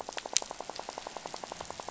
{"label": "biophony, rattle", "recorder": "SoundTrap 500"}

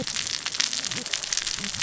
{"label": "biophony, cascading saw", "recorder": "SoundTrap 600 or HydroMoth"}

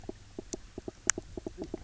{"label": "biophony, knock croak", "recorder": "SoundTrap 300"}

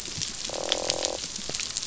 {"label": "biophony, croak", "recorder": "SoundTrap 500"}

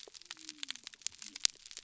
{"label": "biophony", "recorder": "SoundTrap 300"}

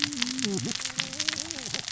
{"label": "biophony, cascading saw", "recorder": "SoundTrap 600 or HydroMoth"}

